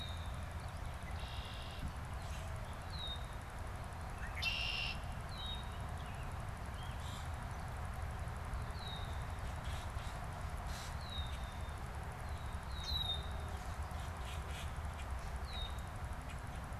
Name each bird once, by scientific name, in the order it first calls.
Agelaius phoeniceus, Turdus migratorius, Quiscalus quiscula